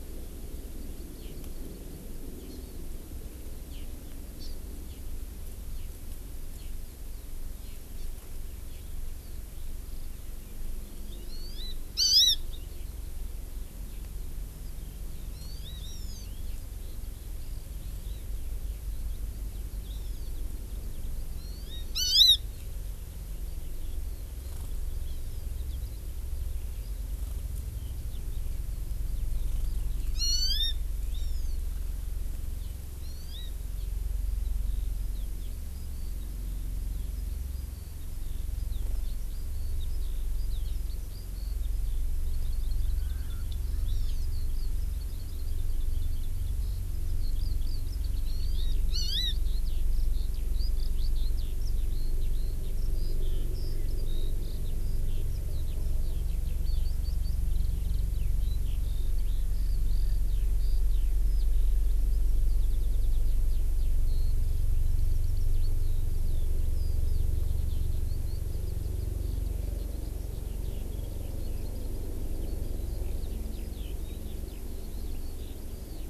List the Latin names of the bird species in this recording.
Chlorodrepanis virens, Alauda arvensis, Pternistis erckelii